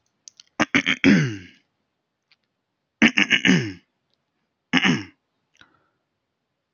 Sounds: Throat clearing